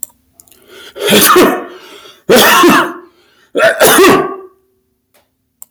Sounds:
Sneeze